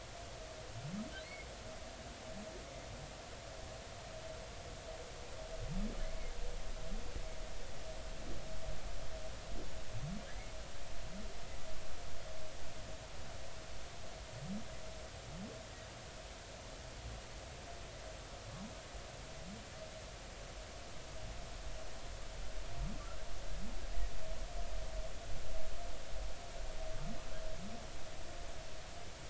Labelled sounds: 1.2	1.5	humpback whale, 2.0 to 4.6 kHz
6.0	6.3	humpback whale, 2.0 to 2.2 kHz
10.3	10.5	humpback whale, 1.5 to 2.2 kHz

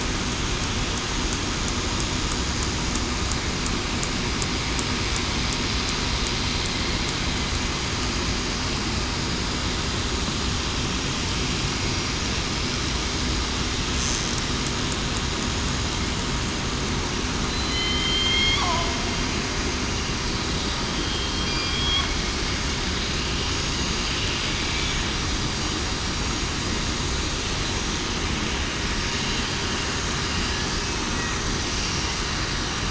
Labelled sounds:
17.5	18.0	killer whale, southern resident, 4.0 to 4.2 kHz
18.6	19.0	killer whale, southern resident, 0.63 to 0.80 kHz
21.3	22.0	killer whale, southern resident, 3.2 to 3.4 kHz

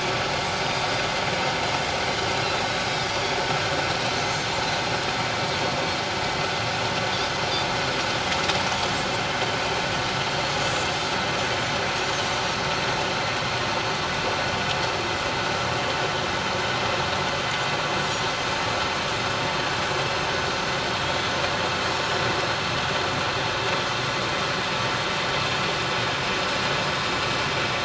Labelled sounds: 3.0	3.4	Pacific white-sided dolphin, 4.4 to 4.8 kHz
4.1	4.5	Pacific white-sided dolphin, 6.2 to 6.4 kHz
10.3	11.1	Pacific white-sided dolphin, 6.3 to 7.4 kHz
21.9	22.2	Pacific white-sided dolphin, 5.4 to 6.8 kHz

